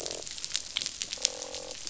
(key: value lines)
label: biophony, croak
recorder: SoundTrap 500